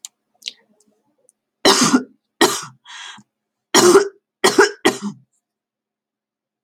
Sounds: Cough